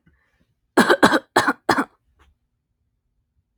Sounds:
Cough